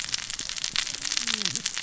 {"label": "biophony, cascading saw", "recorder": "SoundTrap 600 or HydroMoth"}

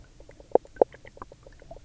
{"label": "biophony, knock croak", "recorder": "SoundTrap 300"}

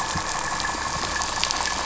{"label": "anthrophony, boat engine", "recorder": "SoundTrap 500"}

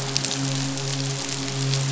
{"label": "biophony, midshipman", "recorder": "SoundTrap 500"}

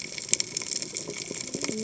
{"label": "biophony, cascading saw", "recorder": "HydroMoth"}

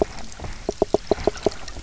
{"label": "biophony, knock croak", "recorder": "SoundTrap 300"}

